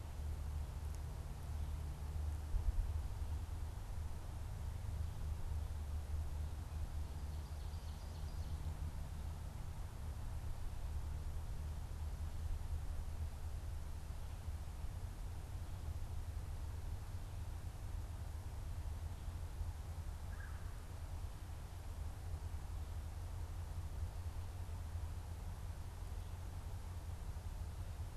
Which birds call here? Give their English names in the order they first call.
Ovenbird, Red-bellied Woodpecker